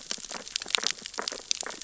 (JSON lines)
{"label": "biophony, sea urchins (Echinidae)", "recorder": "SoundTrap 600 or HydroMoth"}